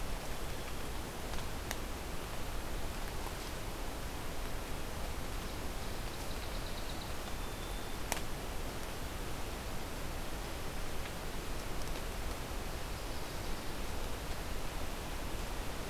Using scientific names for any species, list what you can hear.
Melospiza melodia